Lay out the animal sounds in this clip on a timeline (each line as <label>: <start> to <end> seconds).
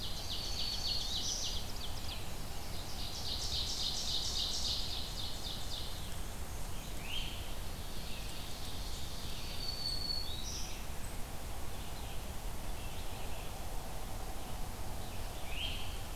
Ovenbird (Seiurus aurocapilla): 0.0 to 2.2 seconds
Red-eyed Vireo (Vireo olivaceus): 0.0 to 16.2 seconds
Black-throated Green Warbler (Setophaga virens): 0.1 to 1.7 seconds
Ovenbird (Seiurus aurocapilla): 2.5 to 5.9 seconds
Black-and-white Warbler (Mniotilta varia): 5.6 to 7.0 seconds
Great Crested Flycatcher (Myiarchus crinitus): 6.9 to 7.5 seconds
Ovenbird (Seiurus aurocapilla): 7.5 to 10.2 seconds
Black-throated Green Warbler (Setophaga virens): 9.2 to 10.9 seconds
Great Crested Flycatcher (Myiarchus crinitus): 15.4 to 16.0 seconds